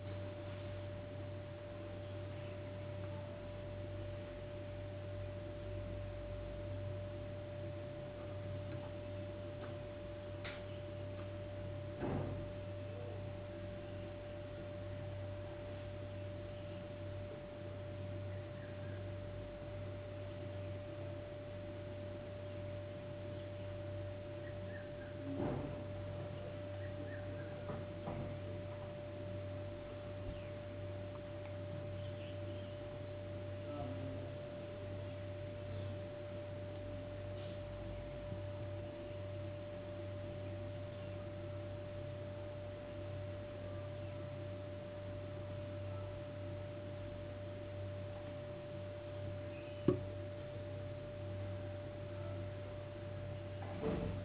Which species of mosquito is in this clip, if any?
no mosquito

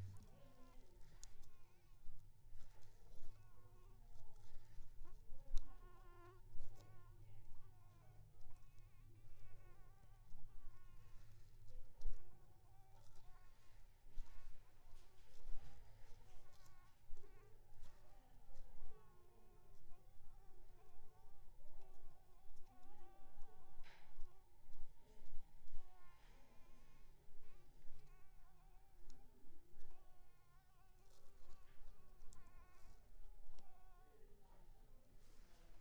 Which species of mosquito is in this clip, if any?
Anopheles arabiensis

